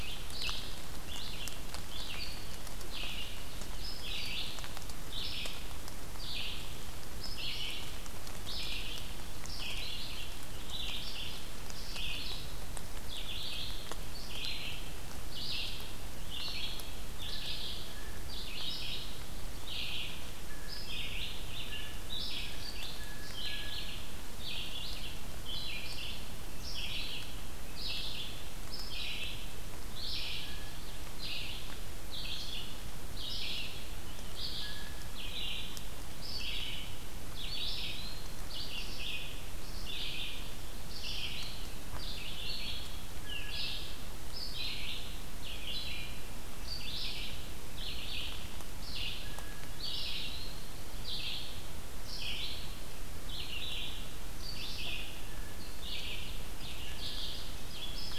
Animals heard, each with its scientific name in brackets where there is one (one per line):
Red-eyed Vireo (Vireo olivaceus)
Blue Jay (Cyanocitta cristata)